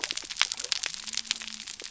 {"label": "biophony", "recorder": "SoundTrap 300"}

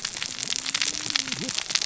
{"label": "biophony, cascading saw", "recorder": "SoundTrap 600 or HydroMoth"}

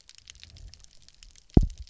{"label": "biophony, double pulse", "recorder": "SoundTrap 300"}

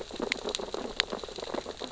{"label": "biophony, sea urchins (Echinidae)", "recorder": "SoundTrap 600 or HydroMoth"}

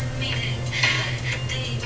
{"label": "anthrophony, boat engine", "recorder": "SoundTrap 300"}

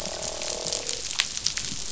{"label": "biophony, croak", "recorder": "SoundTrap 500"}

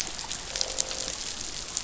{"label": "biophony, croak", "recorder": "SoundTrap 500"}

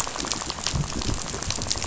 {"label": "biophony, rattle", "recorder": "SoundTrap 500"}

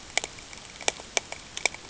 {"label": "ambient", "recorder": "HydroMoth"}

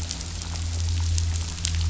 {"label": "anthrophony, boat engine", "recorder": "SoundTrap 500"}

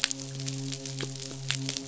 {"label": "biophony, midshipman", "recorder": "SoundTrap 500"}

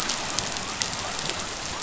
{"label": "biophony", "recorder": "SoundTrap 500"}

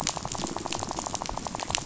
{"label": "biophony, rattle", "recorder": "SoundTrap 500"}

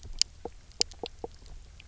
{"label": "biophony, knock croak", "recorder": "SoundTrap 300"}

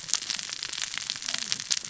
{"label": "biophony, cascading saw", "recorder": "SoundTrap 600 or HydroMoth"}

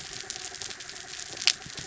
{"label": "anthrophony, mechanical", "recorder": "SoundTrap 300"}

